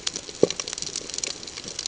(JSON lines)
{"label": "ambient", "recorder": "HydroMoth"}